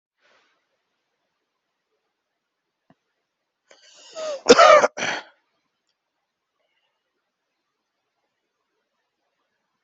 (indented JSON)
{
  "expert_labels": [
    {
      "quality": "good",
      "cough_type": "dry",
      "dyspnea": false,
      "wheezing": false,
      "stridor": true,
      "choking": false,
      "congestion": false,
      "nothing": false,
      "diagnosis": "obstructive lung disease",
      "severity": "mild"
    }
  ],
  "age": 34,
  "gender": "male",
  "respiratory_condition": true,
  "fever_muscle_pain": false,
  "status": "symptomatic"
}